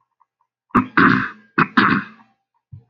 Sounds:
Throat clearing